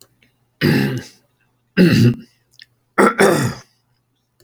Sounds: Throat clearing